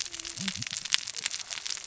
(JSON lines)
{"label": "biophony, cascading saw", "recorder": "SoundTrap 600 or HydroMoth"}